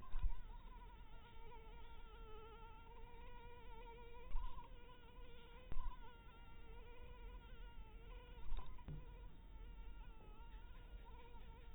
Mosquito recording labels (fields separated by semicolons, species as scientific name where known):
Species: mosquito; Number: one; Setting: cup